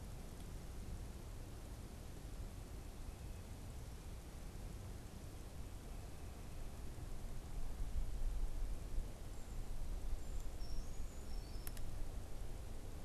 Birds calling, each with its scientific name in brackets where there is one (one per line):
Brown Creeper (Certhia americana)